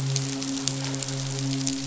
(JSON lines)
{"label": "biophony, midshipman", "recorder": "SoundTrap 500"}